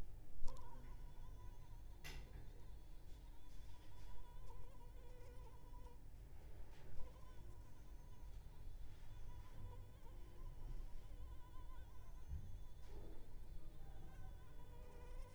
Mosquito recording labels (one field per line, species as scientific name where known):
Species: Anopheles arabiensis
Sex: female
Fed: unfed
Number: one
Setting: cup